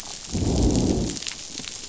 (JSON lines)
{"label": "biophony, growl", "recorder": "SoundTrap 500"}